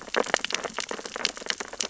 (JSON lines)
{"label": "biophony, sea urchins (Echinidae)", "recorder": "SoundTrap 600 or HydroMoth"}